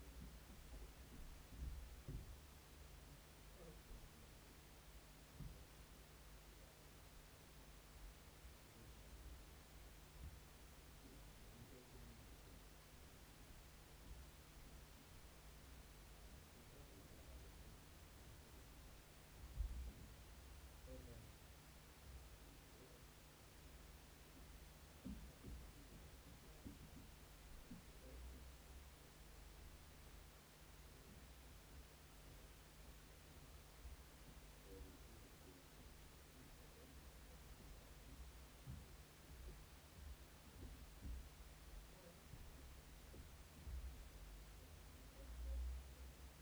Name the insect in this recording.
Isophya kraussii, an orthopteran